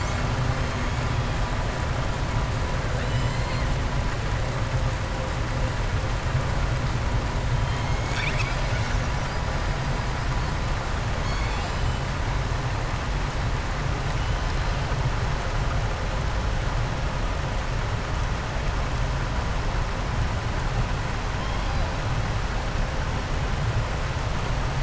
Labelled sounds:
3.0	3.6	killer whale, southern resident, 2.0 to 5.1 kHz
7.6	9.4	killer whale, southern resident, 1.3 to 7.7 kHz
11.1	11.9	killer whale, southern resident, 2.2 to 8.0 kHz

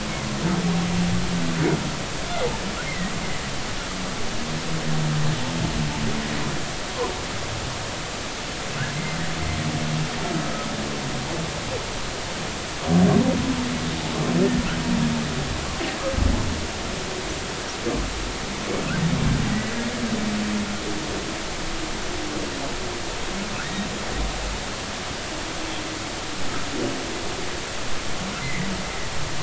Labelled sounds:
2.8	3.1	humpback whale, 1.8 to 2.2 kHz
23.6	23.9	humpback whale, 1.7 to 2.0 kHz
28.4	28.7	humpback whale, 1.9 to 2.2 kHz

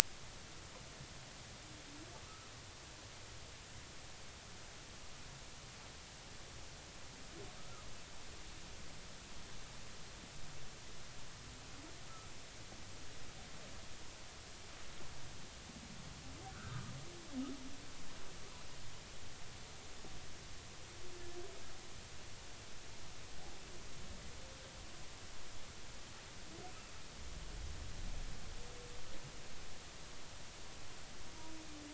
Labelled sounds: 16.5	16.9	humpback whale, 1.1 to 1.7 kHz

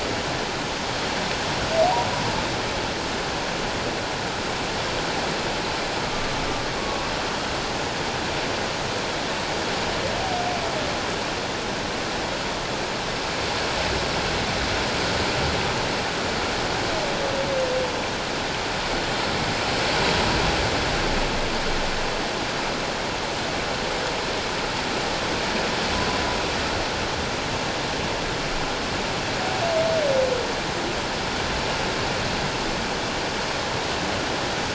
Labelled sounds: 6.0	6.4	humpback whale, 1.1 to 1.2 kHz
6.8	7.1	humpback whale, 0.94 to 1.2 kHz

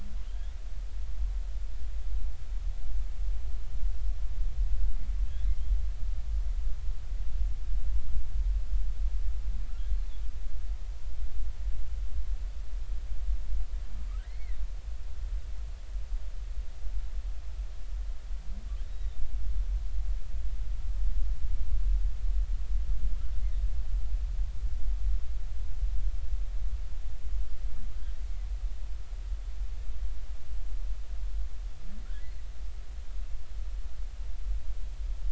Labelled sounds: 14.2	14.6	humpback whale, 1.8 to 4.5 kHz
18.9	19.2	humpback whale, 3.5 to 3.9 kHz

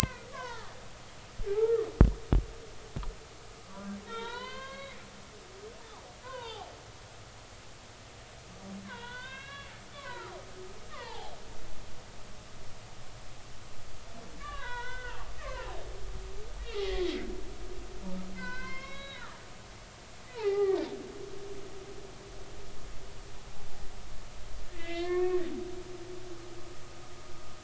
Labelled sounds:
0.0	0.7	humpback whale, 0.80 to 2.7 kHz
1.5	1.9	humpback whale, 1.1 to 1.4 kHz
4.1	5.0	humpback whale, 0.86 to 4.4 kHz
6.2	6.7	humpback whale, 0.80 to 3.2 kHz
8.9	10.3	humpback whale, 0.86 to 4.0 kHz
10.9	11.3	humpback whale, 0.80 to 1.3 kHz
14.4	15.7	humpback whale, 0.90 to 4.1 kHz
16.6	17.0	humpback whale, 1.8 to 3.4 kHz
18.3	19.4	humpback whale, 0.93 to 5.5 kHz
20.3	20.8	humpback whale, 0.80 to 2.1 kHz
24.8	25.5	humpback whale, 1.6 to 3.9 kHz
26.0	26.4	humpback whale, 0.99 to 1.2 kHz

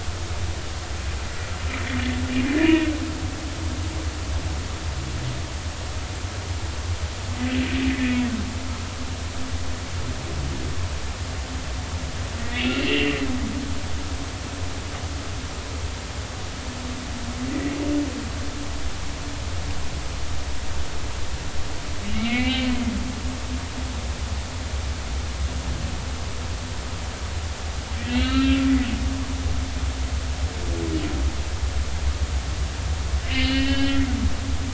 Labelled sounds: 2.4	2.9	humpback whale, 0.93 to 3.0 kHz
12.6	13.2	humpback whale, 2.6 to 3.2 kHz
22.1	22.7	humpback whale, 1.9 to 3.2 kHz
28.0	28.6	humpback whale, 1.2 to 4.2 kHz
33.2	34.0	humpback whale, 1.6 to 3.3 kHz

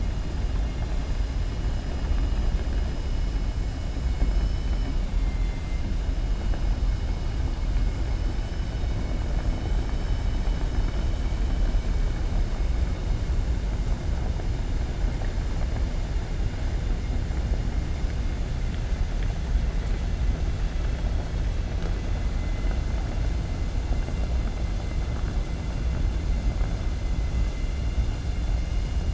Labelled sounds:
4.2	5.8	vessel noise, 1.8 to 5.9 kHz

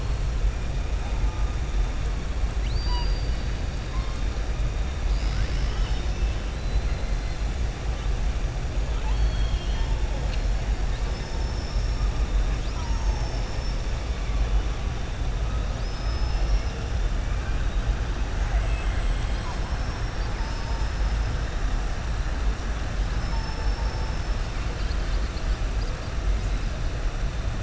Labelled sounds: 2.5	3.4	killer whale, southern resident, 0.96 to 4.9 kHz
5.0	7.0	killer whale, southern resident, 1.3 to 5.9 kHz
8.9	9.9	killer whale, southern resident, 0.88 to 5.3 kHz
15.7	16.7	killer whale, southern resident, 4.3 to 6.1 kHz
18.4	19.6	killer whale, southern resident, 0.75 to 7.9 kHz
23.1	24.3	killer whale, southern resident, 4.5 to 6.2 kHz

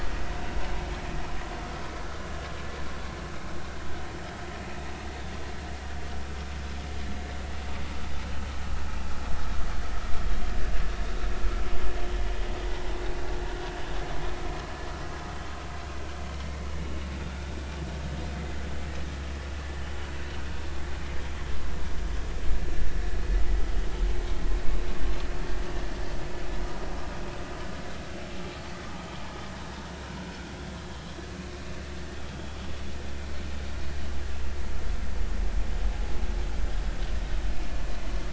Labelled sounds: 16.3	16.6	vessel noise, 2.0 to 2.2 kHz
32.3	32.6	vessel noise, 3.1 to 3.4 kHz

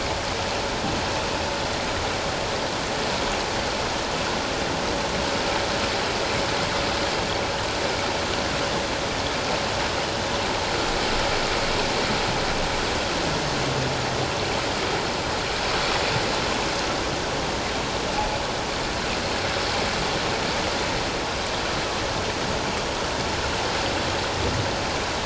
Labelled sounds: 18.1	18.4	humpback whale, 0.78 to 0.91 kHz

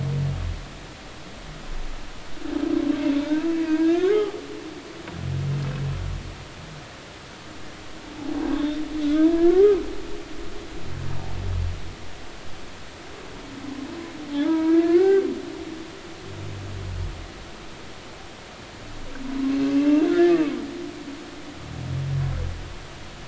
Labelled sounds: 3.7	4.4	humpback whale, 0.80 to 2.3 kHz
8.5	9.8	humpback whale, 0.93 to 3.7 kHz
14.3	15.3	humpback whale, 0.80 to 2.4 kHz
19.7	20.1	humpback whale, 2.6 to 2.8 kHz

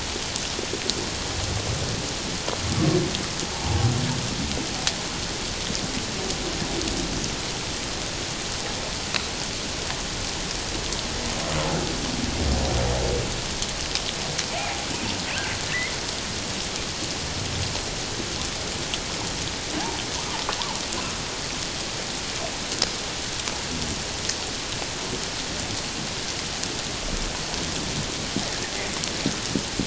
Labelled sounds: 14.6	14.8	humpback whale, 0.78 to 0.84 kHz
15.7	15.9	humpback whale, 1.7 to 2.2 kHz

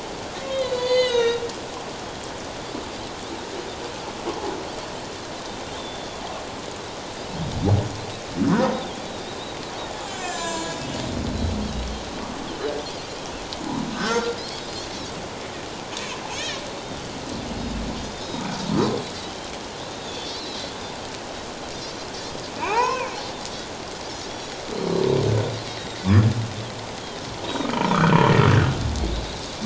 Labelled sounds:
0.4	1.5	humpback whale, 1.3 to 6.7 kHz
5.8	6.2	Pacific white-sided dolphin, 3.3 to 3.6 kHz
10.1	11.0	humpback whale, 0.91 to 7.2 kHz
13.9	14.4	humpback whale, 1.2 to 1.4 kHz
14.6	14.8	Pacific white-sided dolphin, 4.8 to 5.1 kHz
16.4	16.6	Pacific white-sided dolphin, 2.2 to 2.6 kHz
19.9	20.6	Pacific white-sided dolphin, 3.4 to 4.6 kHz
22.6	23.1	humpback whale, 0.78 to 2.8 kHz
24.3	25.0	Pacific white-sided dolphin, 3.8 to 5.8 kHz
25.7	26.0	Pacific white-sided dolphin, 3.6 to 4.0 kHz
27.4	27.7	Pacific white-sided dolphin, 3.6 to 3.9 kHz
27.7	28.2	humpback whale, 0.88 to 1.6 kHz

